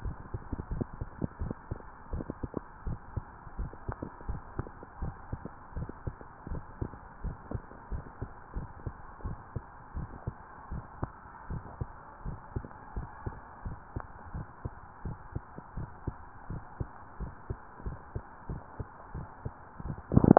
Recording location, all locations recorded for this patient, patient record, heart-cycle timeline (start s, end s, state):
mitral valve (MV)
aortic valve (AV)+pulmonary valve (PV)+tricuspid valve (TV)+mitral valve (MV)
#Age: Adolescent
#Sex: Male
#Height: 170.0 cm
#Weight: 72.4 kg
#Pregnancy status: False
#Murmur: Absent
#Murmur locations: nan
#Most audible location: nan
#Systolic murmur timing: nan
#Systolic murmur shape: nan
#Systolic murmur grading: nan
#Systolic murmur pitch: nan
#Systolic murmur quality: nan
#Diastolic murmur timing: nan
#Diastolic murmur shape: nan
#Diastolic murmur grading: nan
#Diastolic murmur pitch: nan
#Diastolic murmur quality: nan
#Outcome: Abnormal
#Campaign: 2015 screening campaign
0.00	0.18	S1
0.18	0.32	systole
0.32	0.42	S2
0.42	0.70	diastole
0.70	0.86	S1
0.86	0.98	systole
0.98	1.10	S2
1.10	1.40	diastole
1.40	1.56	S1
1.56	1.70	systole
1.70	1.80	S2
1.80	2.10	diastole
2.10	2.26	S1
2.26	2.42	systole
2.42	2.52	S2
2.52	2.82	diastole
2.82	2.98	S1
2.98	3.12	systole
3.12	3.26	S2
3.26	3.56	diastole
3.56	3.72	S1
3.72	3.84	systole
3.84	3.96	S2
3.96	4.24	diastole
4.24	4.42	S1
4.42	4.56	systole
4.56	4.68	S2
4.68	5.00	diastole
5.00	5.16	S1
5.16	5.32	systole
5.32	5.44	S2
5.44	5.76	diastole
5.76	5.90	S1
5.90	6.06	systole
6.06	6.16	S2
6.16	6.48	diastole
6.48	6.64	S1
6.64	6.80	systole
6.80	6.92	S2
6.92	7.22	diastole
7.22	7.38	S1
7.38	7.52	systole
7.52	7.64	S2
7.64	7.90	diastole
7.90	8.04	S1
8.04	8.18	systole
8.18	8.28	S2
8.28	8.54	diastole
8.54	8.70	S1
8.70	8.84	systole
8.84	8.94	S2
8.94	9.24	diastole
9.24	9.38	S1
9.38	9.52	systole
9.52	9.64	S2
9.64	9.96	diastole
9.96	10.10	S1
10.10	10.26	systole
10.26	10.38	S2
10.38	10.70	diastole
10.70	10.84	S1
10.84	10.98	systole
10.98	11.10	S2
11.10	11.48	diastole
11.48	11.64	S1
11.64	11.78	systole
11.78	11.88	S2
11.88	12.24	diastole
12.24	12.40	S1
12.40	12.52	systole
12.52	12.66	S2
12.66	12.94	diastole
12.94	13.08	S1
13.08	13.22	systole
13.22	13.34	S2
13.34	13.64	diastole
13.64	13.78	S1
13.78	13.92	systole
13.92	14.04	S2
14.04	14.32	diastole
14.32	14.46	S1
14.46	14.62	systole
14.62	14.72	S2
14.72	15.04	diastole
15.04	15.18	S1
15.18	15.32	systole
15.32	15.44	S2
15.44	15.76	diastole
15.76	15.90	S1
15.90	16.06	systole
16.06	16.16	S2
16.16	16.48	diastole
16.48	16.64	S1
16.64	16.78	systole
16.78	16.92	S2
16.92	17.20	diastole
17.20	17.34	S1
17.34	17.48	systole
17.48	17.58	S2
17.58	17.84	diastole
17.84	17.98	S1
17.98	18.14	systole
18.14	18.24	S2
18.24	18.50	diastole
18.50	18.62	S1
18.62	18.78	systole
18.78	18.88	S2
18.88	19.14	diastole